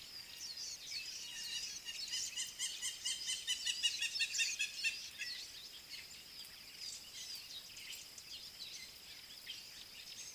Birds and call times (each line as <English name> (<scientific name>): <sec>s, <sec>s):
Hamerkop (Scopus umbretta): 3.3s